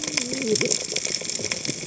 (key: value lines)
label: biophony, cascading saw
recorder: HydroMoth